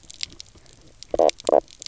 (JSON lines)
{"label": "biophony, knock croak", "recorder": "SoundTrap 300"}